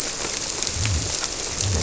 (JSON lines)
{"label": "biophony", "recorder": "SoundTrap 300"}